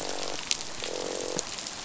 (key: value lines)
label: biophony, croak
recorder: SoundTrap 500